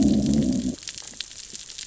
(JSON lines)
{"label": "biophony, growl", "recorder": "SoundTrap 600 or HydroMoth"}